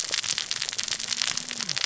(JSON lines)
{"label": "biophony, cascading saw", "recorder": "SoundTrap 600 or HydroMoth"}